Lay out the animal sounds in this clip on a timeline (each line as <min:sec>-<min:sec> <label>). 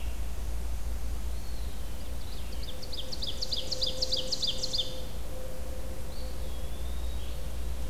0:00.0-0:07.9 Red-eyed Vireo (Vireo olivaceus)
0:01.1-0:01.9 Eastern Wood-Pewee (Contopus virens)
0:02.1-0:05.1 Ovenbird (Seiurus aurocapilla)
0:05.9-0:07.3 Eastern Wood-Pewee (Contopus virens)